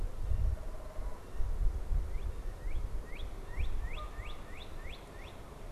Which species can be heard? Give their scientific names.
unidentified bird, Cardinalis cardinalis, Branta canadensis